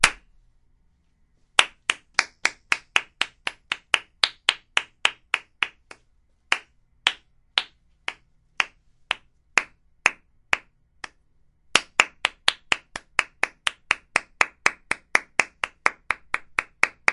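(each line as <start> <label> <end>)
1.4 Dry, sharp clapping sounds repeated. 6.0
6.4 Scattered applause with repeated clapping. 10.7
11.5 Dry, sharp clapping sounds repeated. 17.1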